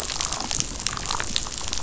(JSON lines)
{"label": "biophony, damselfish", "recorder": "SoundTrap 500"}